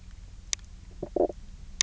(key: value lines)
label: biophony, knock croak
recorder: SoundTrap 300